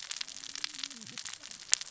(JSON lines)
{"label": "biophony, cascading saw", "recorder": "SoundTrap 600 or HydroMoth"}